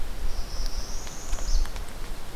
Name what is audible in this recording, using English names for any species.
Northern Parula